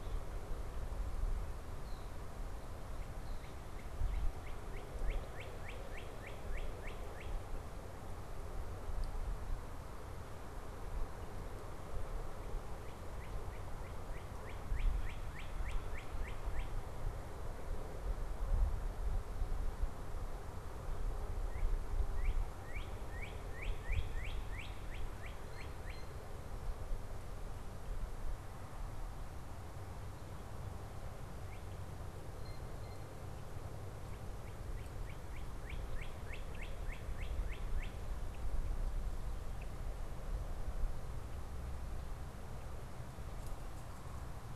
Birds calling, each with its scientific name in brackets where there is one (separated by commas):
Northern Cardinal (Cardinalis cardinalis), Blue Jay (Cyanocitta cristata)